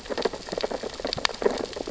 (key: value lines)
label: biophony, sea urchins (Echinidae)
recorder: SoundTrap 600 or HydroMoth